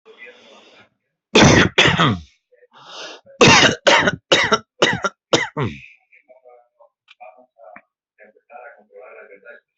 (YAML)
expert_labels:
- quality: ok
  cough_type: dry
  dyspnea: false
  wheezing: false
  stridor: false
  choking: false
  congestion: false
  nothing: true
  diagnosis: COVID-19
  severity: mild
age: 47
gender: male
respiratory_condition: false
fever_muscle_pain: false
status: healthy